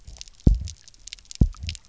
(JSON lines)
{"label": "biophony, double pulse", "recorder": "SoundTrap 300"}